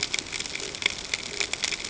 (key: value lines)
label: ambient
recorder: HydroMoth